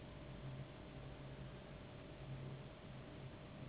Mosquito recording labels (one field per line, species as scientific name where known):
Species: Anopheles gambiae s.s.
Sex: female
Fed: unfed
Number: one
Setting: insect culture